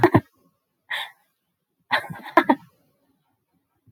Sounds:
Laughter